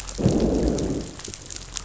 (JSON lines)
{"label": "biophony, growl", "recorder": "SoundTrap 500"}